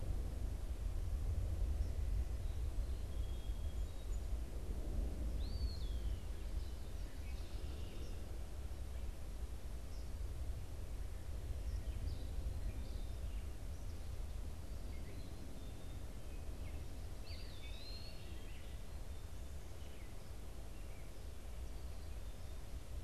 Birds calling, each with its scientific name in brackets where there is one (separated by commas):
Song Sparrow (Melospiza melodia), Eastern Wood-Pewee (Contopus virens)